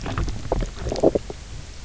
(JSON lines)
{"label": "biophony, knock croak", "recorder": "SoundTrap 300"}